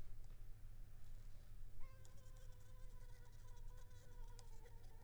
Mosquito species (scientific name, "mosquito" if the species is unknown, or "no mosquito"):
Culex pipiens complex